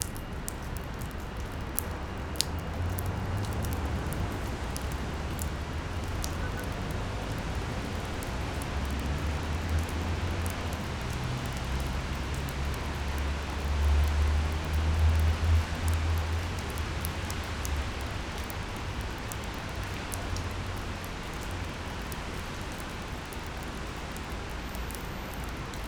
Is a person speaking?
no